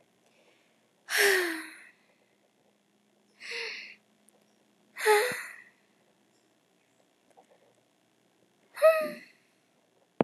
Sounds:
Sigh